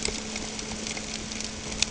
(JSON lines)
{"label": "ambient", "recorder": "HydroMoth"}